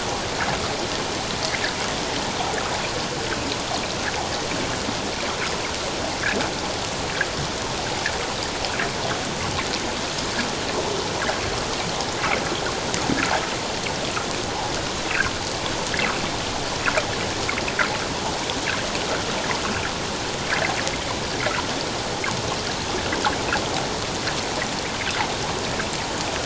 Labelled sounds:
15.1	15.3	water noise, 2.2 to 2.8 kHz

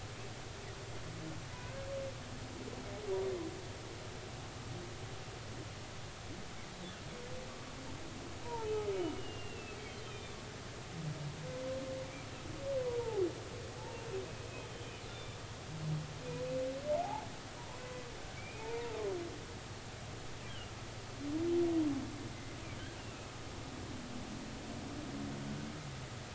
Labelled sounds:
8.4	8.7	humpback whale, 0.83 to 1.0 kHz
9.2	10.4	humpback whale, 2.3 to 3.9 kHz
12.8	13.2	humpback whale, 0.80 to 1.0 kHz
14.7	15.4	humpback whale, 2.9 to 3.7 kHz
17.0	17.3	humpback whale, 0.80 to 0.99 kHz
18.6	19.0	humpback whale, 0.83 to 0.99 kHz
19.4	20.7	humpback whale, 2.2 to 3.3 kHz
23.0	23.3	humpback whale, 2.5 to 2.9 kHz

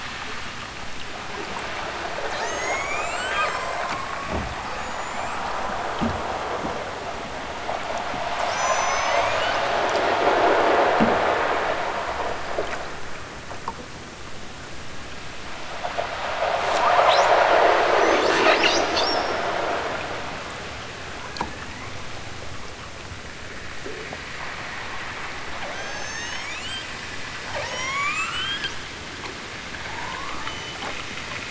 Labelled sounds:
2.2	3.9	killer whale, southern Alaska resident, 0.78 to 8.0 kHz
4.6	5.7	killer whale, southern Alaska resident, 2.3 to 8.0 kHz
8.4	9.5	killer whale, southern Alaska resident, 4.2 to 8.0 kHz
21.1	22.0	killer whale, southern Alaska resident, 1.0 to 2.5 kHz
25.6	27.0	killer whale, southern Alaska resident, 1.1 to 8.0 kHz
27.5	28.9	killer whale, southern Alaska resident, 0.46 to 8.0 kHz
29.8	30.8	killer whale, southern Alaska resident, 0.55 to 8.0 kHz

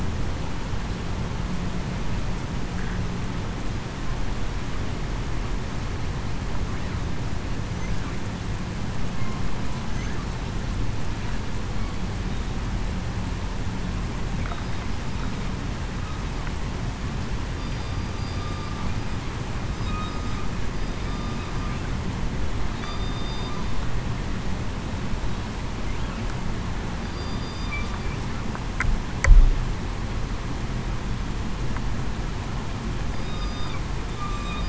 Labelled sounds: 17.6	18.1	killer whale, southern resident, 4.7 to 4.9 kHz
19.9	20.3	killer whale, southern resident, 1.2 to 1.3 kHz
20.7	21.1	killer whale, southern resident, 4.8 to 5.0 kHz
22.8	23.5	killer whale, southern resident, 3.4 to 3.7 kHz
27.0	27.7	killer whale, southern resident, 4.6 to 4.9 kHz
33.1	33.7	killer whale, southern resident, 1.2 to 5.0 kHz
34.2	34.6	killer whale, southern resident, 1.1 to 1.2 kHz

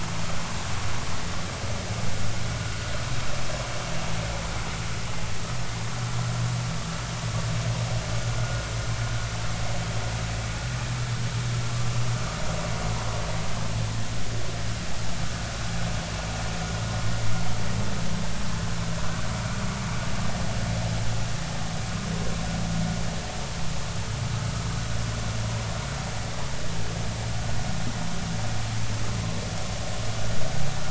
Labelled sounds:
8.4	8.6	vessel noise, 1.4 to 1.5 kHz

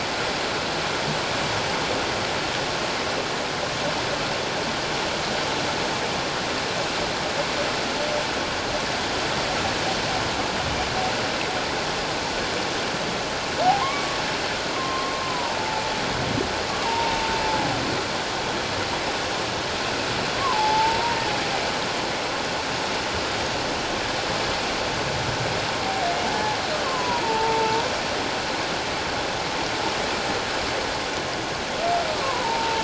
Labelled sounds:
13.6	15.8	humpback whale, 0.78 to 2.3 kHz
16.8	17.2	humpback whale, 0.84 to 1.0 kHz
20.4	21.2	humpback whale, 0.81 to 1.2 kHz
26.2	27.9	humpback whale, 0.81 to 1.2 kHz
32.2	32.8	humpback whale, 0.78 to 1.2 kHz

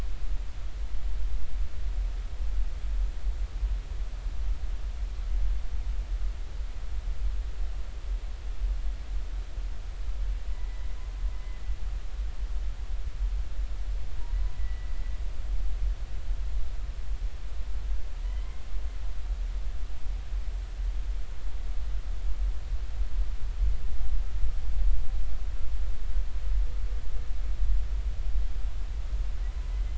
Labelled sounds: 10.5	10.9	humpback whale, 1.8 to 2.1 kHz
14.5	14.9	humpback whale, 1.9 to 2.0 kHz
18.2	18.6	humpback whale, 1.9 to 2.1 kHz
29.7	29.9	humpback whale, 2.0 to 2.1 kHz

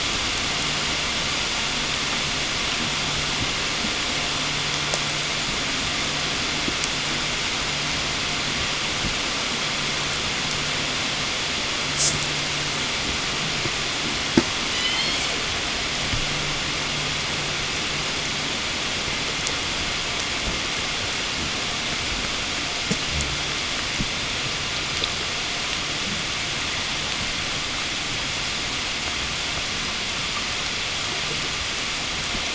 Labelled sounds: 14.4	15.5	killer whale, southern resident, 0 to 8.0 kHz

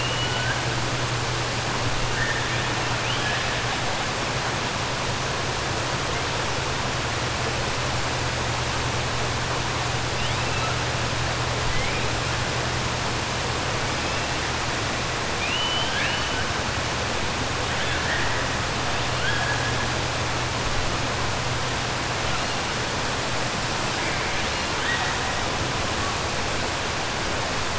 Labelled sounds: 15.3	16.4	killer whale, 1.6 to 5.4 kHz

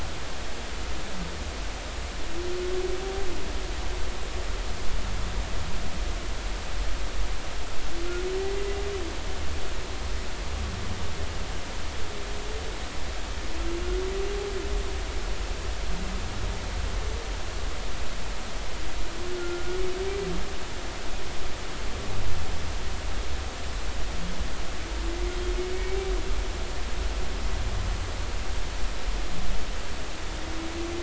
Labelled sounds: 19.4	19.8	humpback whale, 1.3 to 1.5 kHz
25.8	26.1	humpback whale, 2.2 to 2.4 kHz

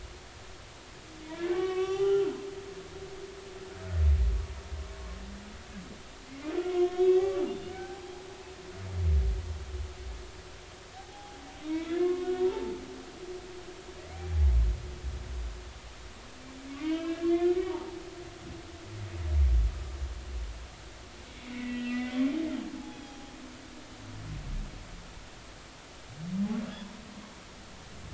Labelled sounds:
1.3	2.4	humpback whale, 0.80 to 5.9 kHz
6.7	7.4	humpback whale, 0.99 to 1.3 kHz
7.7	8.0	humpback whale, 0.80 to 1.6 kHz
11.0	12.7	humpback whale, 0.80 to 3.9 kHz
16.8	18.0	humpback whale, 0.80 to 3.3 kHz
21.4	22.2	humpback whale, 1.9 to 3.2 kHz
22.8	23.3	humpback whale, 0.80 to 3.4 kHz

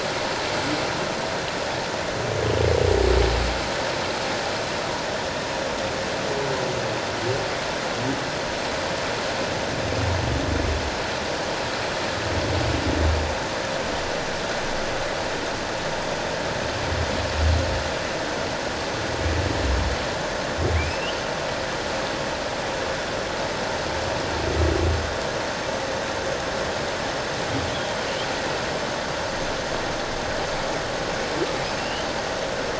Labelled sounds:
20.7	21.2	humpback whale, 2.0 to 3.2 kHz
31.8	32.1	humpback whale, 2.7 to 3.2 kHz

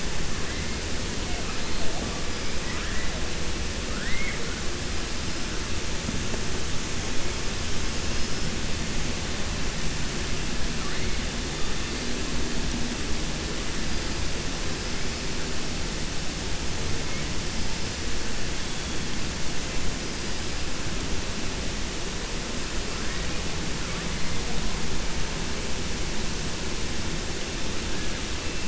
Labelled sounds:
2.6	3.1	killer whale, 0.98 to 2.4 kHz
3.9	4.4	killer whale, 1.3 to 2.3 kHz

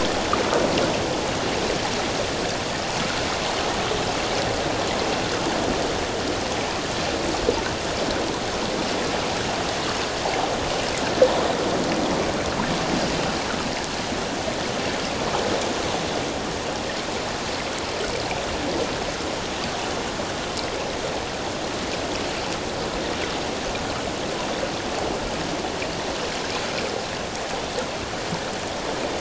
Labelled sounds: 10.2	10.5	water noise, 0.78 to 0.94 kHz

